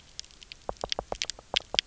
{"label": "biophony, knock", "recorder": "SoundTrap 300"}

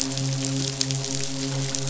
{"label": "biophony, midshipman", "recorder": "SoundTrap 500"}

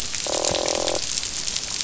{"label": "biophony, croak", "recorder": "SoundTrap 500"}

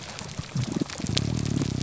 {"label": "biophony, grouper groan", "recorder": "SoundTrap 300"}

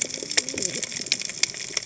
{"label": "biophony, cascading saw", "recorder": "HydroMoth"}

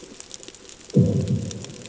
{"label": "anthrophony, bomb", "recorder": "HydroMoth"}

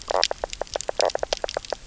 {"label": "biophony, knock croak", "recorder": "SoundTrap 300"}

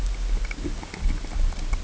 {"label": "ambient", "recorder": "HydroMoth"}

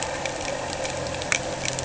{"label": "anthrophony, boat engine", "recorder": "HydroMoth"}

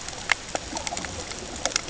{"label": "ambient", "recorder": "HydroMoth"}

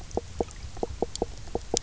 {"label": "biophony, knock croak", "recorder": "SoundTrap 300"}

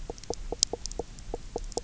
{"label": "biophony, knock croak", "recorder": "SoundTrap 300"}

